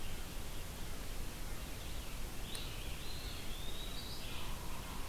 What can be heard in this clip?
Red-eyed Vireo, Eastern Wood-Pewee